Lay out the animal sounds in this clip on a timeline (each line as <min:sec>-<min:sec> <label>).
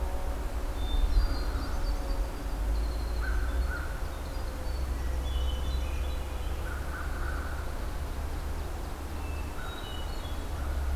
0:00.6-0:06.1 Winter Wren (Troglodytes hiemalis)
0:00.6-0:01.9 Hermit Thrush (Catharus guttatus)
0:03.1-0:04.0 American Crow (Corvus brachyrhynchos)
0:05.1-0:06.3 Hermit Thrush (Catharus guttatus)
0:06.5-0:07.7 American Crow (Corvus brachyrhynchos)
0:07.9-0:09.8 Ovenbird (Seiurus aurocapilla)
0:09.3-0:10.7 Hermit Thrush (Catharus guttatus)
0:09.5-0:09.9 American Crow (Corvus brachyrhynchos)